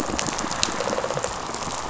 {"label": "biophony, rattle response", "recorder": "SoundTrap 500"}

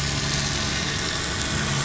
{"label": "anthrophony, boat engine", "recorder": "SoundTrap 500"}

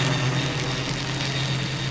{"label": "anthrophony, boat engine", "recorder": "SoundTrap 500"}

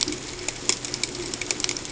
{"label": "ambient", "recorder": "HydroMoth"}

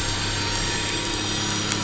{"label": "anthrophony, boat engine", "recorder": "SoundTrap 500"}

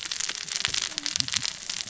{"label": "biophony, cascading saw", "recorder": "SoundTrap 600 or HydroMoth"}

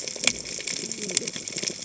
{"label": "biophony, cascading saw", "recorder": "HydroMoth"}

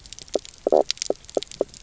{"label": "biophony, knock croak", "recorder": "SoundTrap 300"}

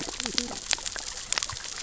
{"label": "biophony, cascading saw", "recorder": "SoundTrap 600 or HydroMoth"}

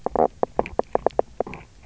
{"label": "biophony, knock croak", "recorder": "SoundTrap 300"}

